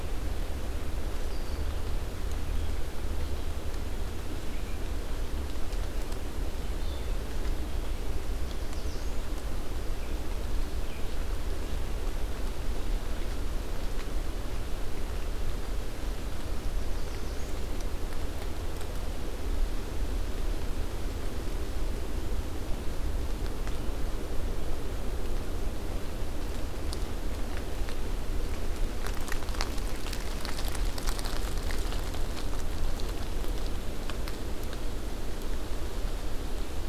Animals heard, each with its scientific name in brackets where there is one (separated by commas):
American Redstart (Setophaga ruticilla)